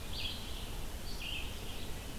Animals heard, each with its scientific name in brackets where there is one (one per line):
Red-eyed Vireo (Vireo olivaceus)